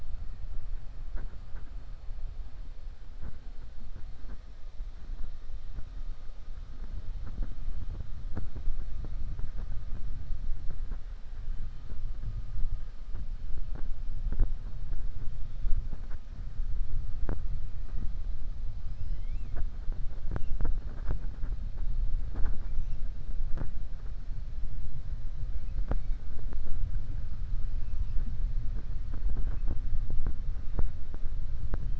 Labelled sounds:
27.8	28.2	killer whale, 1.7 to 2.9 kHz

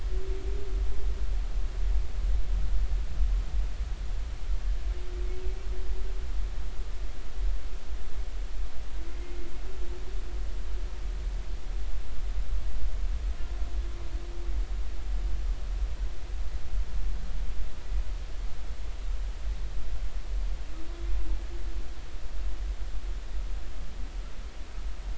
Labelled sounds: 9.1	9.3	humpback whale, 2.0 to 2.1 kHz

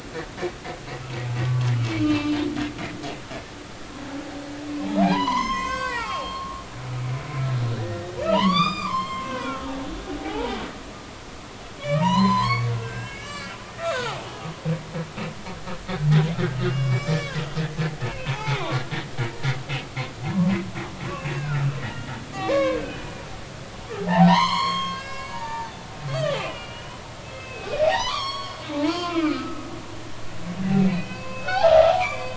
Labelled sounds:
1.5	2.4	humpback whale, 0.96 to 4.0 kHz
4.8	6.6	humpback whale, 0.80 to 7.8 kHz
7.3	7.6	humpback whale, 1.6 to 1.7 kHz
8.2	9.6	humpback whale, 0.86 to 7.5 kHz
10.2	10.5	humpback whale, 0.80 to 0.99 kHz
11.8	14.2	humpback whale, 0.86 to 5.2 kHz
16.7	17.4	humpback whale, 1.5 to 7.6 kHz
18.2	18.7	humpback whale, 0.80 to 1.1 kHz
20.3	20.6	humpback whale, 0.90 to 1.2 kHz
21.1	23.2	humpback whale, 0.99 to 3.0 kHz
24.0	25.7	humpback whale, 0.80 to 6.8 kHz
26.0	29.7	humpback whale, 0.80 to 5.6 kHz
30.0	32.3	humpback whale, 0.80 to 4.8 kHz

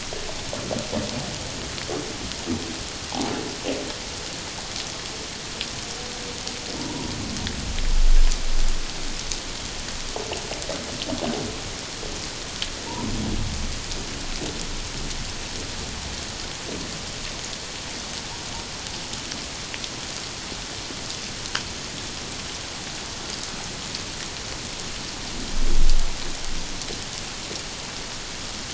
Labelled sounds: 6.8	7.1	humpback whale, 0.88 to 1.0 kHz

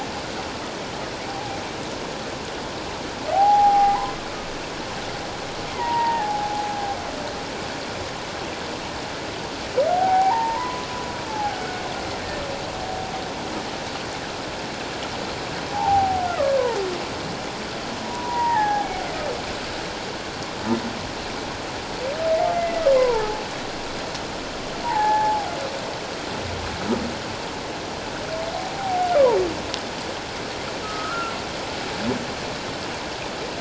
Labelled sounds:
1.3	1.6	humpback whale, 0.78 to 0.88 kHz
3.3	4.0	humpback whale, 0.78 to 0.91 kHz
5.7	6.7	humpback whale, 0.78 to 2.1 kHz
9.9	10.8	humpback whale, 0.78 to 2.3 kHz
11.3	11.6	humpback whale, 0.78 to 0.91 kHz
15.7	16.6	humpback whale, 0.78 to 2.1 kHz
18.0	18.9	humpback whale, 0.78 to 2.1 kHz
22.5	23.4	humpback whale, 0.81 to 2.1 kHz
24.8	25.5	humpback whale, 0.78 to 2.1 kHz
28.7	29.1	humpback whale, 0.78 to 0.91 kHz
30.8	31.3	humpback whale, 1.2 to 1.5 kHz

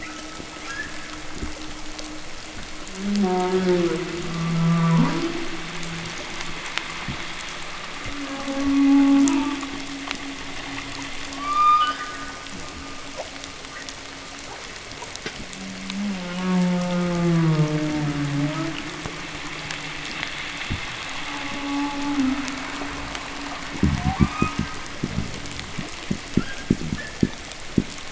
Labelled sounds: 0.3	1.3	humpback whale, chirp, 1.2 to 2.0 kHz
2.7	6.3	humpback whale, 0.09 to 3.5 kHz
6.9	7.3	fish, knock, 0.02 to 0.32 kHz
7.8	10.1	humpback whale, moan, 0.14 to 2.9 kHz
11.2	12.4	humpback whale, 1.0 to 5.0 kHz
15.4	18.8	humpback whale, moan, 0.10 to 1.8 kHz
20.6	20.9	fish, knock, 0.01 to 0.44 kHz
20.9	23.6	humpback whale, moan, 0.19 to 1.5 kHz
23.6	27.9	fish, knock and groan, 0.01 to 0.59 kHz
23.8	24.9	humpback whale, 0.65 to 5.4 kHz
26.2	27.4	humpback whale, chirp, 1.3 to 1.9 kHz

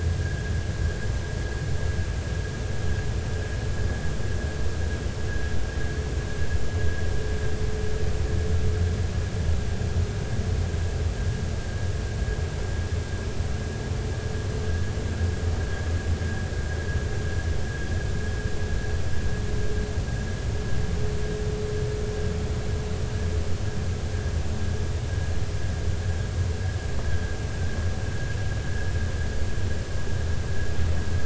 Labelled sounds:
27.1	27.4	vessel noise, 1.5 to 1.7 kHz

